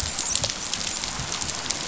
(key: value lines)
label: biophony, dolphin
recorder: SoundTrap 500